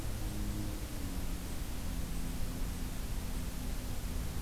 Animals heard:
forest ambience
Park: Acadia National Park